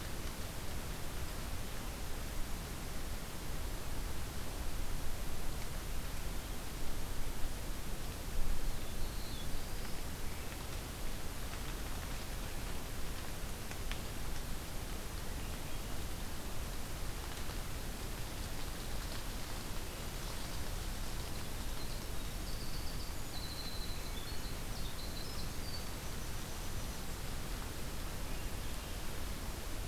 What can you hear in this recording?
Black-throated Blue Warbler, Winter Wren